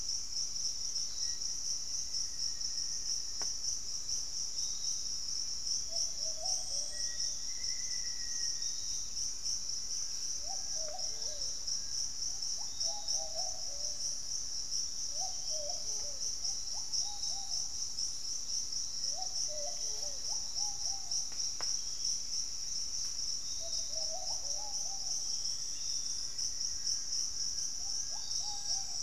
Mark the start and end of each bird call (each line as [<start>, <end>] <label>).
[0.00, 1.55] Pygmy Antwren (Myrmotherula brachyura)
[0.00, 9.05] Black-faced Antthrush (Formicarius analis)
[0.00, 29.02] Piratic Flycatcher (Legatus leucophaius)
[5.75, 29.02] Plumbeous Pigeon (Patagioenas plumbea)
[8.25, 10.45] Pygmy Antwren (Myrmotherula brachyura)
[9.75, 12.25] Fasciated Antshrike (Cymbilaimus lineatus)
[12.15, 29.02] Ruddy Pigeon (Patagioenas subvinacea)
[18.95, 20.65] Black-faced Antthrush (Formicarius analis)
[25.35, 29.02] Fasciated Antshrike (Cymbilaimus lineatus)
[25.45, 26.25] unidentified bird
[25.55, 27.35] Black-faced Antthrush (Formicarius analis)